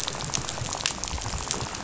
{"label": "biophony, rattle", "recorder": "SoundTrap 500"}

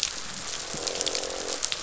{"label": "biophony, croak", "recorder": "SoundTrap 500"}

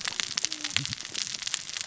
{"label": "biophony, cascading saw", "recorder": "SoundTrap 600 or HydroMoth"}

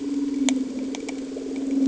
{"label": "anthrophony, boat engine", "recorder": "HydroMoth"}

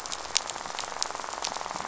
{"label": "biophony, rattle", "recorder": "SoundTrap 500"}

